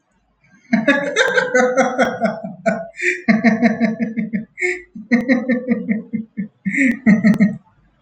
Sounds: Laughter